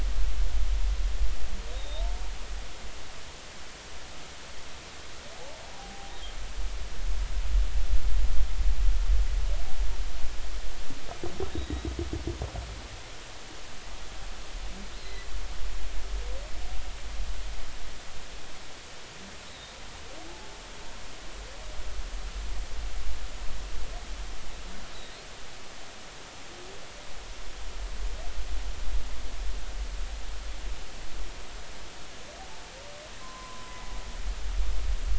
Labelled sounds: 1.7	2.0	humpback whale, 3.6 to 3.8 kHz
5.7	6.1	humpback whale, 0.80 to 0.90 kHz
11.5	11.9	humpback whale, 3.7 to 3.9 kHz
15.0	15.2	humpback whale, 3.9 to 4.3 kHz
19.5	19.8	humpback whale, 3.6 to 4.0 kHz
33.2	33.8	humpback whale, 0.96 to 1.1 kHz

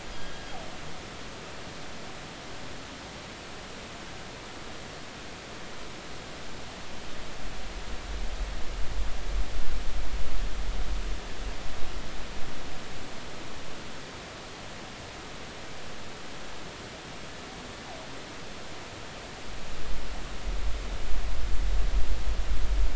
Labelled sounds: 0.1	0.5	killer whale, northern resident, G clan, GG subclan, call N28, 1.6 to 5.0 kHz

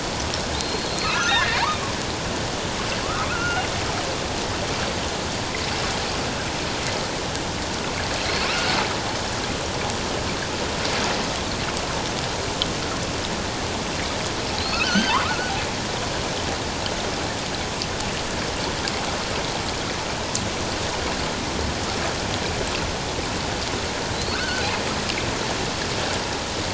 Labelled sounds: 0.5	1.5	killer whale, offshore, 1.2 to 4.5 kHz
3.3	3.6	killer whale, offshore, 1.2 to 1.5 kHz
8.2	8.7	killer whale, offshore, 2.5 to 4.4 kHz
14.6	15.5	killer whale, offshore, 0.81 to 6.4 kHz
24.1	24.7	killer whale, offshore, 1.2 to 4.5 kHz

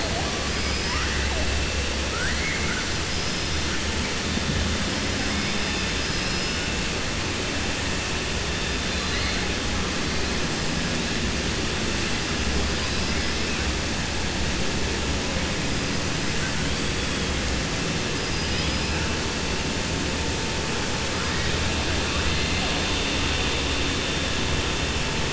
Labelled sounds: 0.5	1.0	killer whale, 4.9 to 5.7 kHz
2.0	2.9	killer whale, 1.3 to 2.2 kHz
5.9	6.6	killer whale, 4.2 to 5.8 kHz

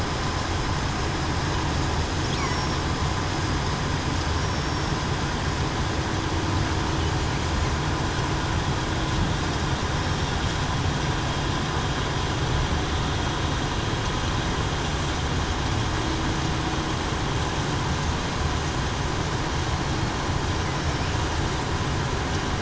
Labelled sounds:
2.4	2.8	killer whale, southern resident, 5.5 to 5.8 kHz
4.4	4.9	killer whale, southern resident, 5.4 to 5.7 kHz
9.9	10.3	killer whale, southern resident, 5.4 to 5.5 kHz
20.7	21.1	killer whale, southern resident, 5.3 to 5.5 kHz

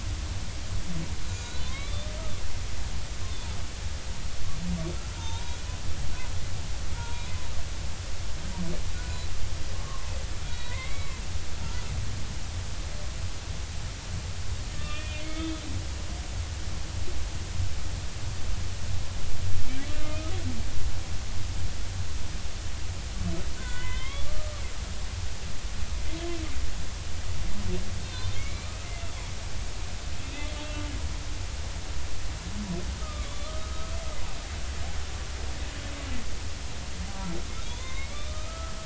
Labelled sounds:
1.3	2.0	humpback whale, 0.99 to 4.1 kHz
5.2	5.6	humpback whale, 0.83 to 0.99 kHz
6.9	7.2	humpback whale, 0.90 to 0.99 kHz
8.9	10.1	humpback whale, 0.99 to 1.5 kHz
10.5	11.2	humpback whale, 0.93 to 4.4 kHz
14.7	15.5	humpback whale, 1.1 to 3.7 kHz
23.6	24.5	humpback whale, 0.93 to 3.5 kHz
28.0	28.7	humpback whale, 2.1 to 4.3 kHz
30.3	30.6	humpback whale, 2.0 to 2.1 kHz
33.0	33.9	humpback whale, 1.1 to 3.6 kHz
37.6	38.7	humpback whale, 0.99 to 3.9 kHz

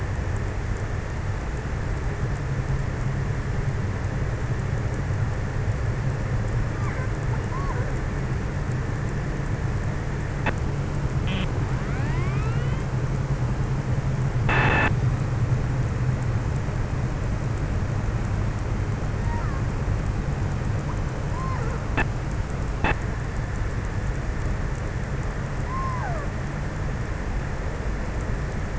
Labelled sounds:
19.1	19.8	killer whale, offshore, 0.55 to 2.1 kHz
21.2	22.1	killer whale, offshore, 0.24 to 2.3 kHz
25.3	26.4	killer whale, offshore, 0.28 to 2.4 kHz

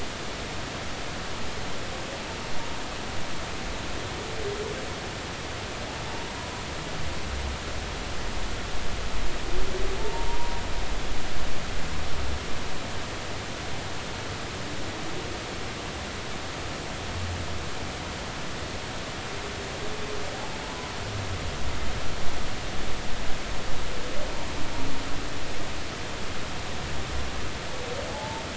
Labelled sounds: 10.0	10.6	humpback whale, 0.86 to 1.1 kHz
20.6	20.9	humpback whale, 0.96 to 1.1 kHz
28.1	28.4	humpback whale, 0.80 to 0.96 kHz

